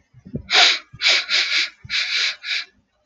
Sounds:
Sniff